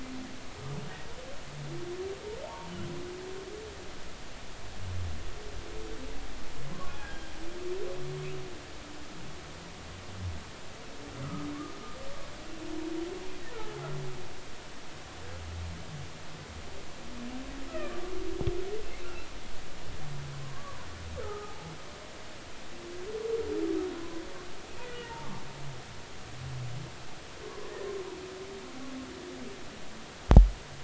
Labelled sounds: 2.4	2.7	humpback whale, 0.80 to 0.99 kHz
6.7	7.3	humpback whale, 0.99 to 1.7 kHz
11.2	11.5	humpback whale, 1.2 to 1.4 kHz
13.5	13.8	humpback whale, 1.2 to 1.5 kHz
20.4	20.9	humpback whale, 0.93 to 1.2 kHz
21.2	21.7	humpback whale, 0.80 to 1.5 kHz
24.0	25.3	humpback whale, 0.83 to 2.0 kHz
27.4	27.7	humpback whale, 0.96 to 1.2 kHz

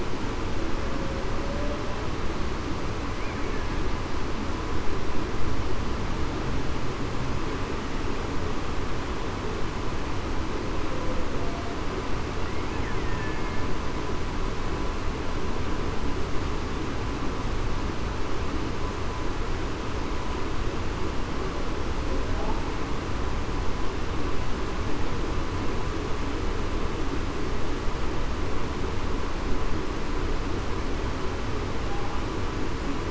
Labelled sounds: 1.4	1.8	humpback whale, 0.56 to 0.61 kHz
13.0	13.4	killer whale, Bigg's (transient), 1.7 to 1.9 kHz

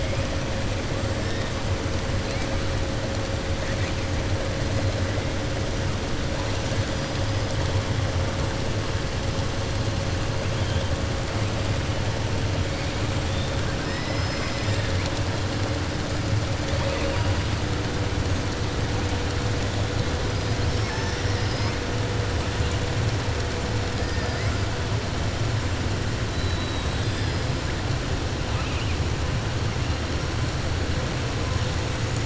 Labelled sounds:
20.6	21.8	killer whale, 4.2 to 6.3 kHz
26.3	27.5	killer whale, 3.1 to 5.3 kHz

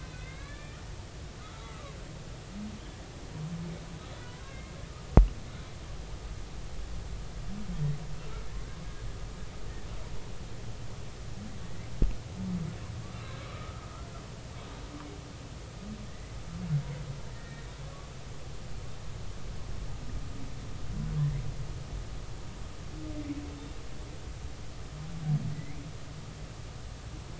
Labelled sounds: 0.0	0.8	humpback whale, 1.4 to 4.0 kHz
1.4	2.0	humpback whale, 0.99 to 1.4 kHz
4.3	4.7	humpback whale, 0.96 to 2.2 kHz
13.5	13.8	humpback whale, 1.1 to 1.4 kHz
16.0	16.4	humpback whale, 1.7 to 2.1 kHz
17.3	18.1	humpback whale, 1.0 to 2.0 kHz
25.5	25.8	humpback whale, 1.9 to 2.4 kHz

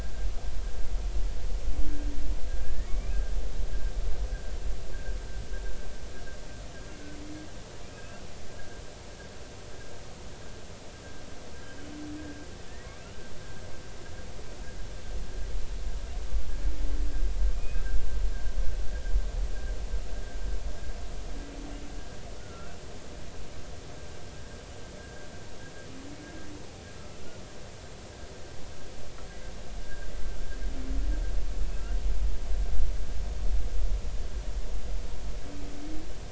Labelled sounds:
2.5	3.2	humpback whale, 1.6 to 2.6 kHz
17.5	17.9	humpback whale, 2.4 to 2.6 kHz
22.4	22.8	humpback whale, 1.2 to 1.6 kHz
25.0	25.3	humpback whale, 1.5 to 1.7 kHz
29.8	30.1	humpback whale, 1.5 to 1.8 kHz

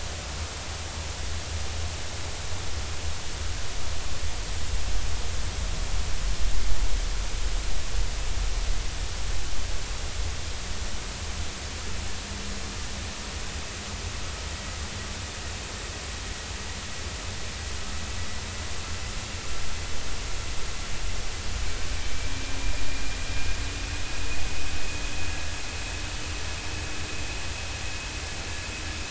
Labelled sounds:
23.6	23.8	vessel noise, 2.3 to 2.5 kHz

